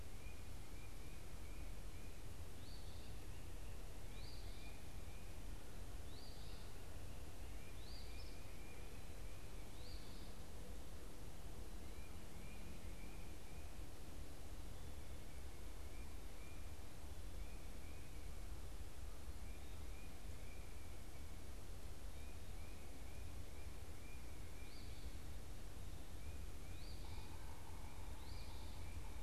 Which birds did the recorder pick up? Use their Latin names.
Sayornis phoebe, Baeolophus bicolor